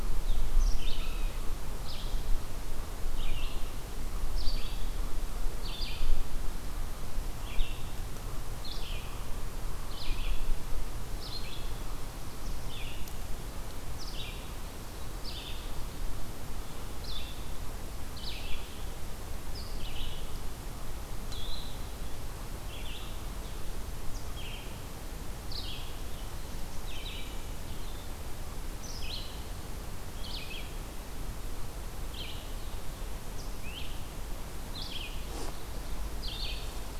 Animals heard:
Eastern Chipmunk (Tamias striatus), Red-eyed Vireo (Vireo olivaceus)

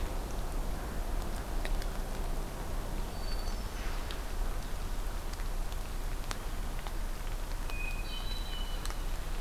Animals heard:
Hermit Thrush (Catharus guttatus)

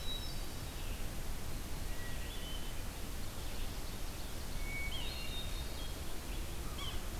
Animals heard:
Ovenbird (Seiurus aurocapilla), American Crow (Corvus brachyrhynchos), Red-eyed Vireo (Vireo olivaceus), Hermit Thrush (Catharus guttatus), Yellow-bellied Sapsucker (Sphyrapicus varius)

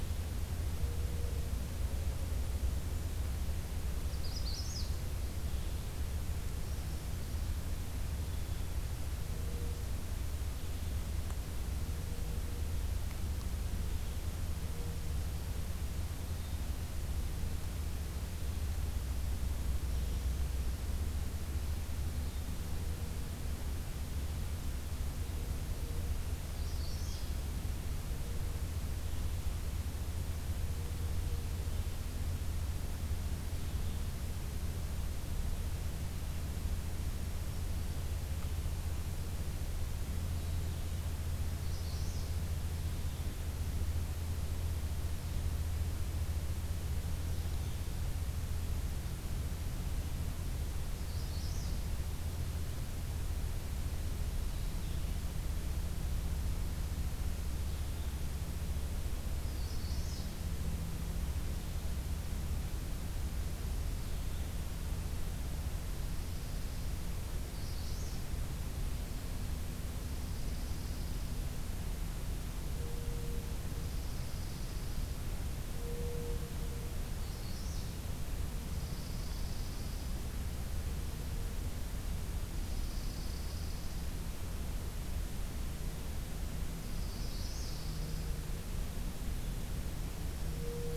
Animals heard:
Magnolia Warbler (Setophaga magnolia), Dark-eyed Junco (Junco hyemalis)

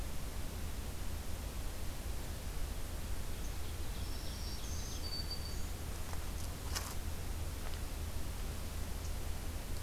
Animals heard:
Black-throated Green Warbler (Setophaga virens), Ovenbird (Seiurus aurocapilla)

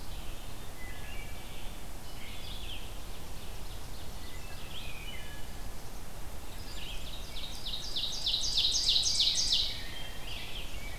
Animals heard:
Ovenbird (Seiurus aurocapilla), Wood Thrush (Hylocichla mustelina), Red-eyed Vireo (Vireo olivaceus), Rose-breasted Grosbeak (Pheucticus ludovicianus)

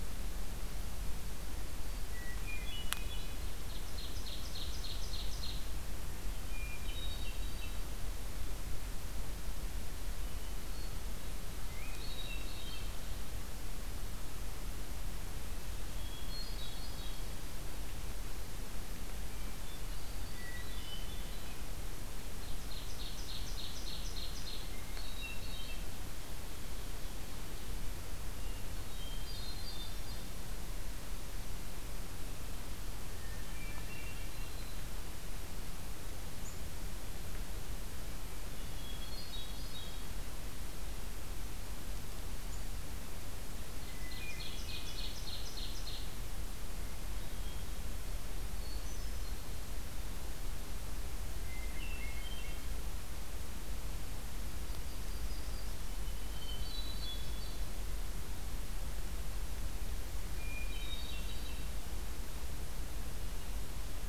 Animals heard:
Ovenbird (Seiurus aurocapilla), Hermit Thrush (Catharus guttatus), Black-throated Green Warbler (Setophaga virens), Yellow-rumped Warbler (Setophaga coronata)

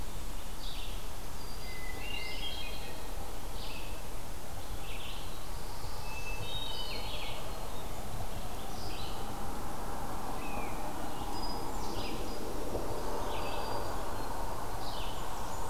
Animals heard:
Black-throated Blue Warbler (Setophaga caerulescens), Red-eyed Vireo (Vireo olivaceus), Black-throated Green Warbler (Setophaga virens), unidentified call, Blackburnian Warbler (Setophaga fusca), Hermit Thrush (Catharus guttatus)

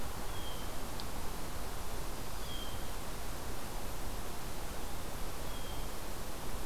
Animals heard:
Hermit Thrush (Catharus guttatus)

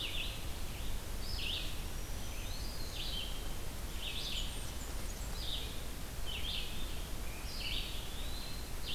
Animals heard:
Black-throated Green Warbler (Setophaga virens), Red-eyed Vireo (Vireo olivaceus), Eastern Wood-Pewee (Contopus virens), Blackburnian Warbler (Setophaga fusca)

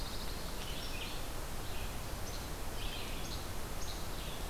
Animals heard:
Pine Warbler (Setophaga pinus), Red-eyed Vireo (Vireo olivaceus), Least Flycatcher (Empidonax minimus)

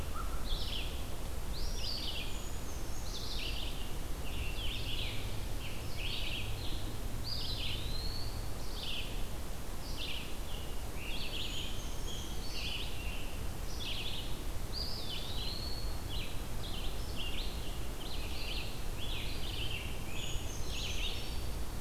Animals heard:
Eastern Wood-Pewee (Contopus virens), Scarlet Tanager (Piranga olivacea), Red-eyed Vireo (Vireo olivaceus), American Crow (Corvus brachyrhynchos), Brown Creeper (Certhia americana)

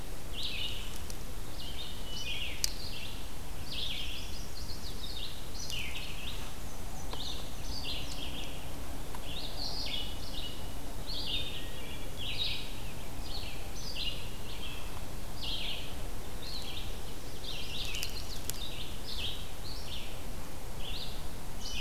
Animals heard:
Wood Thrush (Hylocichla mustelina), Red-eyed Vireo (Vireo olivaceus), Black-and-white Warbler (Mniotilta varia), Chestnut-sided Warbler (Setophaga pensylvanica)

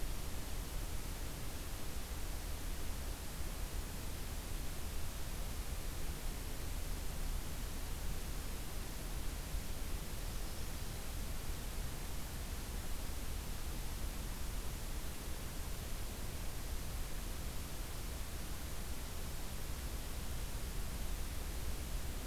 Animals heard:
Magnolia Warbler (Setophaga magnolia)

